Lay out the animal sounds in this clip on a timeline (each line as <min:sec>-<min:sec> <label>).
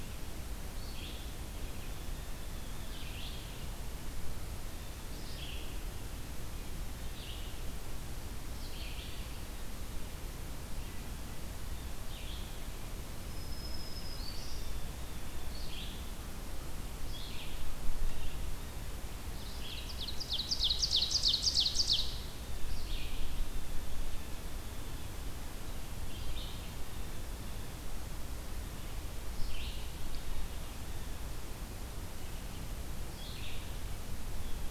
0:00.5-0:34.7 Red-eyed Vireo (Vireo olivaceus)
0:01.5-0:03.1 Blue Jay (Cyanocitta cristata)
0:13.2-0:14.7 Black-throated Green Warbler (Setophaga virens)
0:19.4-0:22.3 Ovenbird (Seiurus aurocapilla)